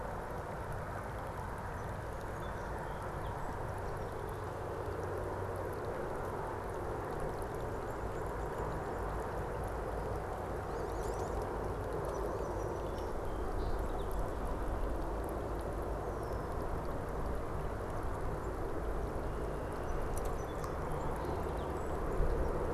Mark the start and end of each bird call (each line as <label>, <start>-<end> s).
Song Sparrow (Melospiza melodia), 1.4-4.3 s
Wood Duck (Aix sponsa), 10.5-11.5 s
Song Sparrow (Melospiza melodia), 11.7-14.3 s
Red-winged Blackbird (Agelaius phoeniceus), 15.9-16.6 s
Red-winged Blackbird (Agelaius phoeniceus), 19.0-20.3 s
Song Sparrow (Melospiza melodia), 19.6-22.7 s